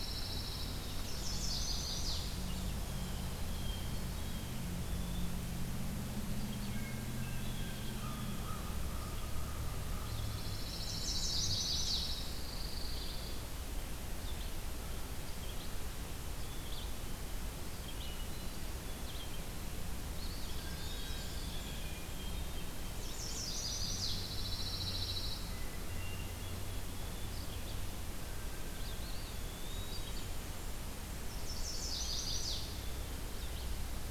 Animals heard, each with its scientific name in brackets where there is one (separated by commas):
Chestnut-sided Warbler (Setophaga pensylvanica), Pine Warbler (Setophaga pinus), Eastern Wood-Pewee (Contopus virens), Blackburnian Warbler (Setophaga fusca), American Crow (Corvus brachyrhynchos), Hermit Thrush (Catharus guttatus), Red-eyed Vireo (Vireo olivaceus), Blue Jay (Cyanocitta cristata)